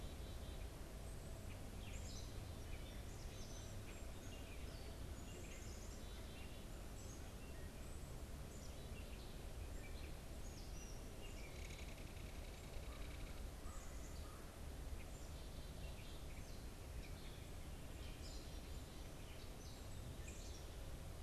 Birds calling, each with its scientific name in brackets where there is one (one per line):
Gray Catbird (Dumetella carolinensis)
Belted Kingfisher (Megaceryle alcyon)
Black-capped Chickadee (Poecile atricapillus)